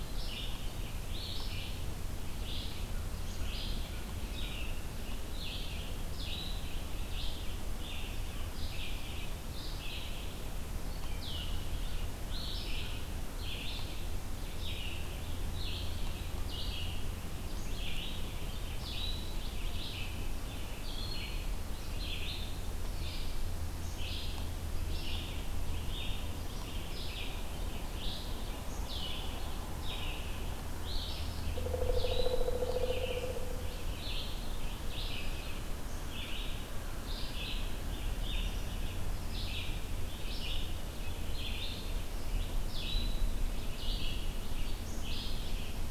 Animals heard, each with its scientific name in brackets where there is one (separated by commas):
Pileated Woodpecker (Dryocopus pileatus), Red-eyed Vireo (Vireo olivaceus)